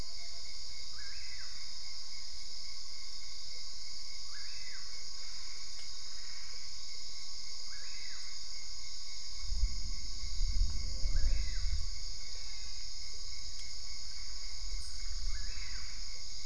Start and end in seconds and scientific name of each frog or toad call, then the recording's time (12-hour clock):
5.1	6.9	Boana albopunctata
12.2	13.1	Physalaemus marmoratus
15.3	16.2	Boana albopunctata
12:30am